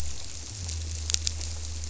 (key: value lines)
label: biophony
recorder: SoundTrap 300